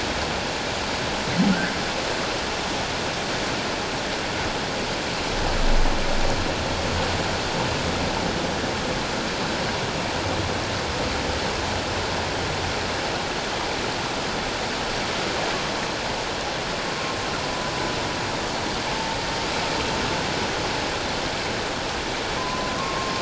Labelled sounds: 22.4	23.1	humpback whale, 0.97 to 1.2 kHz

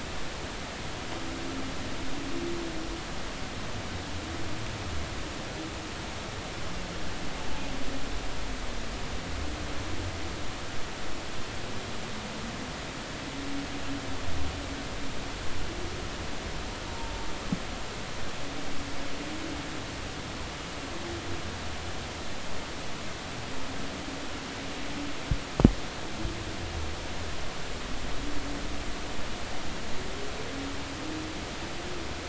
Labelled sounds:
16.9	17.3	humpback whale, 0.83 to 0.96 kHz

